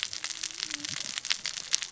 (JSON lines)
{"label": "biophony, cascading saw", "recorder": "SoundTrap 600 or HydroMoth"}